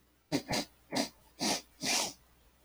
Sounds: Sniff